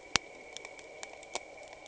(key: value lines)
label: anthrophony, boat engine
recorder: HydroMoth